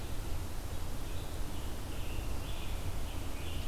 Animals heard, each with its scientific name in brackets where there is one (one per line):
Scarlet Tanager (Piranga olivacea)